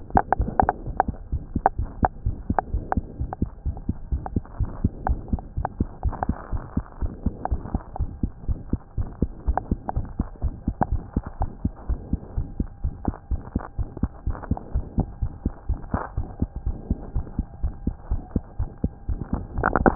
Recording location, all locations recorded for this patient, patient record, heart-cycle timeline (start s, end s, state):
aortic valve (AV)
aortic valve (AV)+pulmonary valve (PV)+tricuspid valve (TV)+mitral valve (MV)
#Age: Child
#Sex: Female
#Height: 95.0 cm
#Weight: 13.1 kg
#Pregnancy status: False
#Murmur: Present
#Murmur locations: aortic valve (AV)+mitral valve (MV)+pulmonary valve (PV)+tricuspid valve (TV)
#Most audible location: tricuspid valve (TV)
#Systolic murmur timing: Early-systolic
#Systolic murmur shape: Plateau
#Systolic murmur grading: II/VI
#Systolic murmur pitch: Low
#Systolic murmur quality: Blowing
#Diastolic murmur timing: nan
#Diastolic murmur shape: nan
#Diastolic murmur grading: nan
#Diastolic murmur pitch: nan
#Diastolic murmur quality: nan
#Outcome: Abnormal
#Campaign: 2015 screening campaign
0.00	4.44	unannotated
4.44	4.60	diastole
4.60	4.70	S1
4.70	4.82	systole
4.82	4.92	S2
4.92	5.08	diastole
5.08	5.20	S1
5.20	5.32	systole
5.32	5.42	S2
5.42	5.56	diastole
5.56	5.66	S1
5.66	5.77	systole
5.77	5.88	S2
5.88	6.04	diastole
6.04	6.14	S1
6.14	6.28	systole
6.28	6.36	S2
6.36	6.52	diastole
6.52	6.64	S1
6.64	6.76	systole
6.76	6.84	S2
6.84	7.02	diastole
7.02	7.14	S1
7.14	7.24	systole
7.24	7.34	S2
7.34	7.52	diastole
7.52	7.64	S1
7.64	7.72	systole
7.72	7.82	S2
7.82	8.00	diastole
8.00	8.10	S1
8.10	8.20	systole
8.20	8.32	S2
8.32	8.48	diastole
8.48	8.60	S1
8.60	8.70	systole
8.70	8.78	S2
8.78	8.98	diastole
8.98	9.10	S1
9.10	9.21	systole
9.21	9.32	S2
9.32	9.48	diastole
9.48	9.58	S1
9.58	9.70	systole
9.70	9.80	S2
9.80	9.96	diastole
9.96	10.06	S1
10.06	10.17	systole
10.17	10.28	S2
10.28	10.41	diastole
10.41	10.54	S1
10.54	10.65	systole
10.65	10.76	S2
10.76	10.92	diastole
10.92	11.02	S1
11.02	11.15	systole
11.15	11.22	S2
11.22	11.39	diastole
11.39	11.50	S1
11.50	11.61	systole
11.61	11.72	S2
11.72	11.87	diastole
11.87	11.97	S1
11.97	12.10	systole
12.10	12.20	S2
12.20	12.36	diastole
12.36	12.48	S1
12.48	12.58	systole
12.58	12.68	S2
12.68	12.84	diastole
12.84	12.93	S1
12.93	13.05	systole
13.05	13.15	S2
13.15	13.30	diastole
13.30	13.42	S1
13.42	13.54	systole
13.54	13.62	S2
13.62	13.78	diastole
13.78	13.88	S1
13.88	14.02	systole
14.02	14.10	S2
14.10	14.26	diastole
14.26	14.38	S1
14.38	14.50	systole
14.50	14.58	S2
14.58	14.73	diastole
14.73	14.84	S1
14.84	14.98	systole
14.98	15.08	S2
15.08	15.22	diastole
15.22	19.95	unannotated